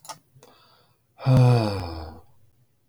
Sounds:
Sigh